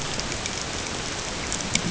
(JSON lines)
{"label": "ambient", "recorder": "HydroMoth"}